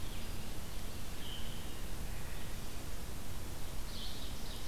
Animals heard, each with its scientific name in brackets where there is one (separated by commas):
Ovenbird (Seiurus aurocapilla), Red-eyed Vireo (Vireo olivaceus)